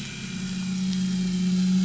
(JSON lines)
{"label": "anthrophony, boat engine", "recorder": "SoundTrap 500"}